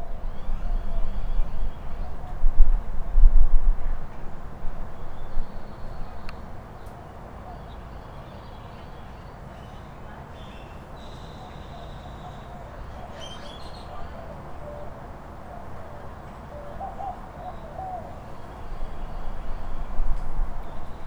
Is this airline traffic?
no